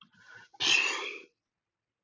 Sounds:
Sniff